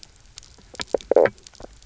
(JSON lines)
{"label": "biophony, knock croak", "recorder": "SoundTrap 300"}